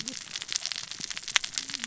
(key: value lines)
label: biophony, cascading saw
recorder: SoundTrap 600 or HydroMoth